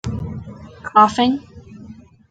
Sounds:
Cough